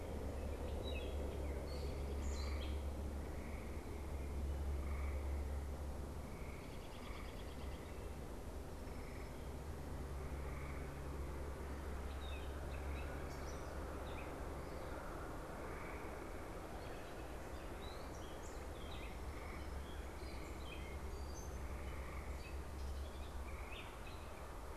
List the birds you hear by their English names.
Gray Catbird, American Robin